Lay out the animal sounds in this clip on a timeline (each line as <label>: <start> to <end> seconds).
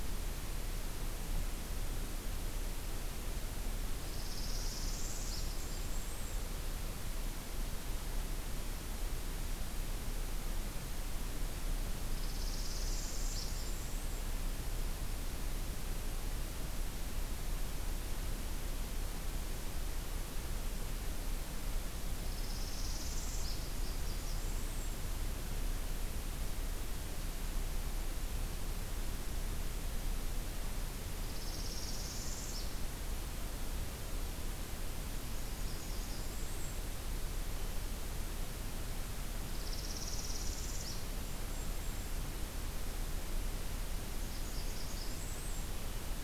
Northern Parula (Setophaga americana): 4.0 to 5.8 seconds
Golden-crowned Kinglet (Regulus satrapa): 4.6 to 6.4 seconds
Northern Parula (Setophaga americana): 12.1 to 13.6 seconds
Golden-crowned Kinglet (Regulus satrapa): 12.4 to 14.4 seconds
Northern Parula (Setophaga americana): 22.2 to 23.7 seconds
Blackburnian Warbler (Setophaga fusca): 23.7 to 25.1 seconds
Northern Parula (Setophaga americana): 31.1 to 32.7 seconds
Blackburnian Warbler (Setophaga fusca): 35.2 to 36.8 seconds
Northern Parula (Setophaga americana): 39.6 to 41.1 seconds
Golden-crowned Kinglet (Regulus satrapa): 41.2 to 42.1 seconds
Blackburnian Warbler (Setophaga fusca): 44.0 to 45.8 seconds